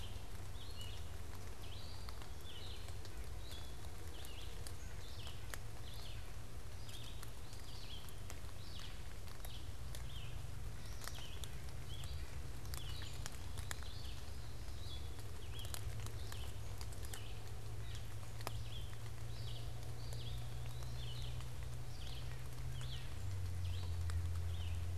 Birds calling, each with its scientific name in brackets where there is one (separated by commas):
Eastern Wood-Pewee (Contopus virens), Red-eyed Vireo (Vireo olivaceus), White-breasted Nuthatch (Sitta carolinensis)